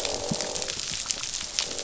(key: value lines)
label: biophony, croak
recorder: SoundTrap 500